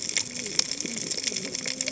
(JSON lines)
{"label": "biophony, cascading saw", "recorder": "HydroMoth"}